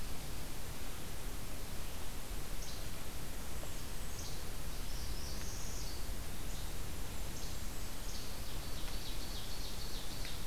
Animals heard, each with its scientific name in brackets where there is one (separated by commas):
Northern Parula (Setophaga americana), Least Flycatcher (Empidonax minimus), Ovenbird (Seiurus aurocapilla), Golden-crowned Kinglet (Regulus satrapa)